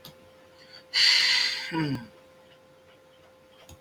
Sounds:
Sigh